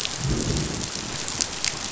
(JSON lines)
{"label": "biophony, growl", "recorder": "SoundTrap 500"}